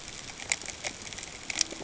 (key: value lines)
label: ambient
recorder: HydroMoth